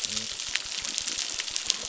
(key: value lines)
label: biophony
recorder: SoundTrap 600